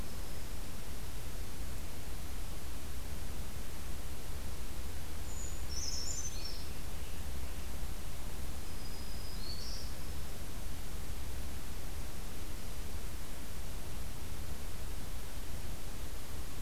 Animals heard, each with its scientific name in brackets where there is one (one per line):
Black-throated Green Warbler (Setophaga virens)
Scarlet Tanager (Piranga olivacea)
Brown Creeper (Certhia americana)